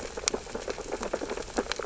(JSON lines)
{"label": "biophony, sea urchins (Echinidae)", "recorder": "SoundTrap 600 or HydroMoth"}